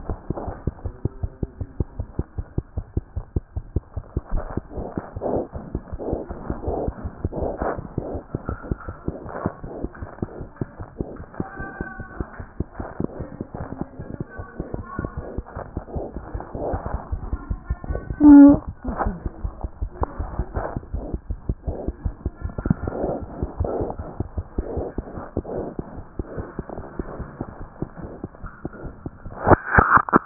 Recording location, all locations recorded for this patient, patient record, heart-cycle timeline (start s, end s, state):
aortic valve (AV)
aortic valve (AV)+mitral valve (MV)
#Age: Infant
#Sex: Female
#Height: nan
#Weight: nan
#Pregnancy status: False
#Murmur: Absent
#Murmur locations: nan
#Most audible location: nan
#Systolic murmur timing: nan
#Systolic murmur shape: nan
#Systolic murmur grading: nan
#Systolic murmur pitch: nan
#Systolic murmur quality: nan
#Diastolic murmur timing: nan
#Diastolic murmur shape: nan
#Diastolic murmur grading: nan
#Diastolic murmur pitch: nan
#Diastolic murmur quality: nan
#Outcome: Abnormal
#Campaign: 2014 screening campaign
0.00	0.77	unannotated
0.77	0.84	diastole
0.84	0.92	S1
0.92	1.04	systole
1.04	1.08	S2
1.08	1.22	diastole
1.22	1.30	S1
1.30	1.42	systole
1.42	1.48	S2
1.48	1.60	diastole
1.60	1.68	S1
1.68	1.78	systole
1.78	1.84	S2
1.84	1.98	diastole
1.98	2.04	S1
2.04	2.16	systole
2.16	2.24	S2
2.24	2.38	diastole
2.38	2.46	S1
2.46	2.56	systole
2.56	2.62	S2
2.62	2.76	diastole
2.76	2.84	S1
2.84	2.96	systole
2.96	3.00	S2
3.00	3.16	diastole
3.16	3.24	S1
3.24	3.34	systole
3.34	3.40	S2
3.40	3.56	diastole
3.56	3.62	S1
3.62	3.74	systole
3.74	3.82	S2
3.82	3.96	diastole
3.96	4.03	S1
4.03	4.15	systole
4.15	4.22	S2
4.22	4.34	diastole
4.34	30.26	unannotated